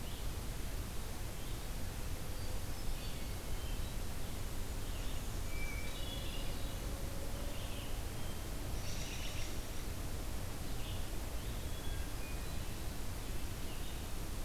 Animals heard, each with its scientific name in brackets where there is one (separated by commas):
Red-eyed Vireo (Vireo olivaceus), Hermit Thrush (Catharus guttatus), American Robin (Turdus migratorius)